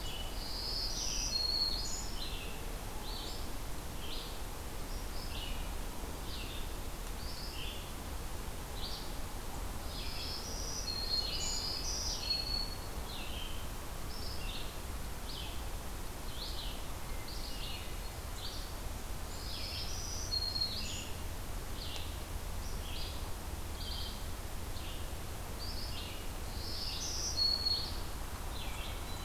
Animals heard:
Black-throated Green Warbler (Setophaga virens), Hermit Thrush (Catharus guttatus), Red-eyed Vireo (Vireo olivaceus)

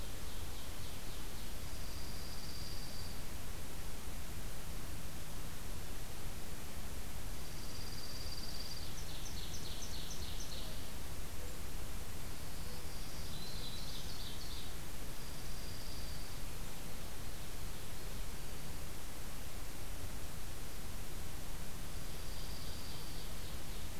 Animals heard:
Black-throated Green Warbler (Setophaga virens), Ovenbird (Seiurus aurocapilla), Dark-eyed Junco (Junco hyemalis)

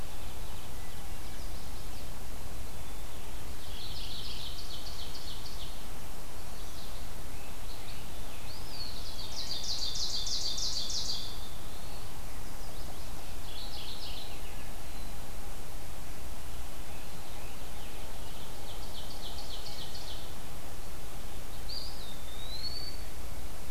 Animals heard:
Eastern Wood-Pewee (Contopus virens), Scarlet Tanager (Piranga olivacea), Mourning Warbler (Geothlypis philadelphia), Ovenbird (Seiurus aurocapilla), Chestnut-sided Warbler (Setophaga pensylvanica)

